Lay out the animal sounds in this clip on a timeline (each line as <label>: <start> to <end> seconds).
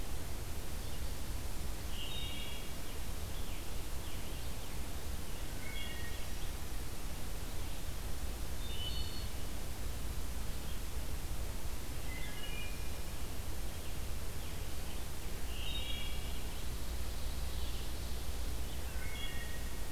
Wood Thrush (Hylocichla mustelina): 1.8 to 2.8 seconds
Scarlet Tanager (Piranga olivacea): 2.9 to 5.5 seconds
Wood Thrush (Hylocichla mustelina): 5.6 to 6.2 seconds
Wood Thrush (Hylocichla mustelina): 8.5 to 9.4 seconds
Wood Thrush (Hylocichla mustelina): 12.0 to 12.9 seconds
Wood Thrush (Hylocichla mustelina): 15.4 to 16.4 seconds
Wood Thrush (Hylocichla mustelina): 18.7 to 19.8 seconds